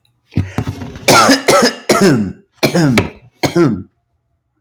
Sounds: Cough